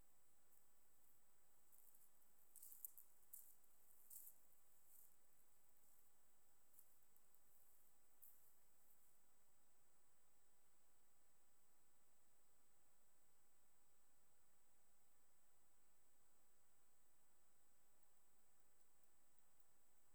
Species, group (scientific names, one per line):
Leptophyes punctatissima
Orthoptera